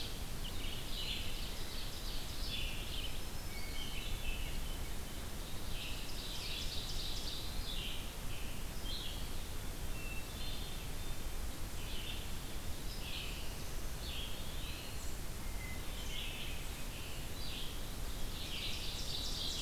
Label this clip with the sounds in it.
Red-eyed Vireo, Eastern Wood-Pewee, Ovenbird, Black-throated Green Warbler, Hermit Thrush